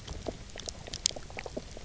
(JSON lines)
{"label": "biophony, knock croak", "recorder": "SoundTrap 300"}